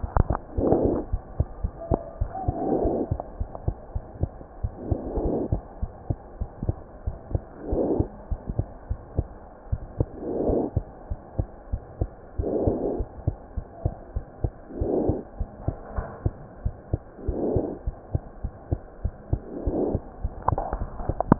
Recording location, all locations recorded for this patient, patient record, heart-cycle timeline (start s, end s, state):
pulmonary valve (PV)
aortic valve (AV)+pulmonary valve (PV)+tricuspid valve (TV)+mitral valve (MV)
#Age: Child
#Sex: Male
#Height: 72.0 cm
#Weight: 7.97 kg
#Pregnancy status: False
#Murmur: Absent
#Murmur locations: nan
#Most audible location: nan
#Systolic murmur timing: nan
#Systolic murmur shape: nan
#Systolic murmur grading: nan
#Systolic murmur pitch: nan
#Systolic murmur quality: nan
#Diastolic murmur timing: nan
#Diastolic murmur shape: nan
#Diastolic murmur grading: nan
#Diastolic murmur pitch: nan
#Diastolic murmur quality: nan
#Outcome: Abnormal
#Campaign: 2015 screening campaign
0.00	5.77	unannotated
5.77	5.90	S1
5.90	6.05	systole
6.05	6.18	S2
6.18	6.36	diastole
6.36	6.48	S1
6.48	6.66	systole
6.66	6.75	S2
6.75	7.04	diastole
7.04	7.13	S1
7.13	7.31	systole
7.31	7.41	S2
7.41	7.67	diastole
7.67	7.79	S1
7.79	7.97	systole
7.97	8.06	S2
8.06	8.29	diastole
8.29	8.39	S1
8.39	8.56	systole
8.56	8.67	S2
8.67	8.88	diastole
8.88	8.98	S1
8.98	9.14	systole
9.14	9.26	S2
9.26	9.70	diastole
9.70	9.80	S1
9.80	9.96	systole
9.96	10.07	S2
10.07	10.44	diastole
10.44	10.56	S1
10.56	10.73	systole
10.73	10.85	S2
10.85	11.08	diastole
11.08	11.18	S1
11.18	11.33	systole
11.33	11.46	S2
11.46	11.70	diastole
11.70	21.39	unannotated